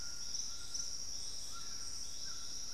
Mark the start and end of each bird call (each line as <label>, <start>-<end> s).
White-throated Toucan (Ramphastos tucanus), 0.0-2.7 s